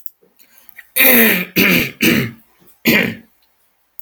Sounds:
Throat clearing